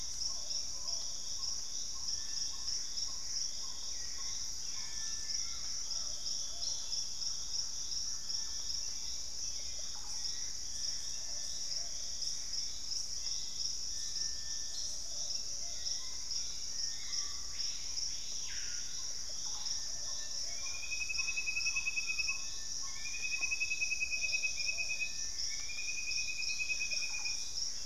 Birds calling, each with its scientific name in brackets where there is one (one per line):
Black-tailed Trogon (Trogon melanurus)
Screaming Piha (Lipaugus vociferans)
Thrush-like Wren (Campylorhynchus turdinus)
Russet-backed Oropendola (Psarocolius angustifrons)
Gray Antbird (Cercomacra cinerascens)
Plumbeous Pigeon (Patagioenas plumbea)
Collared Trogon (Trogon collaris)
Hauxwell's Thrush (Turdus hauxwelli)